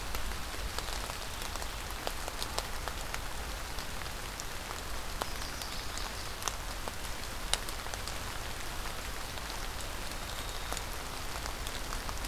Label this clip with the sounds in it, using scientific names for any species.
Setophaga pensylvanica, Zonotrichia albicollis